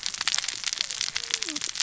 {"label": "biophony, cascading saw", "recorder": "SoundTrap 600 or HydroMoth"}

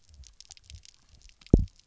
{"label": "biophony, double pulse", "recorder": "SoundTrap 300"}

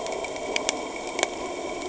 {"label": "anthrophony, boat engine", "recorder": "HydroMoth"}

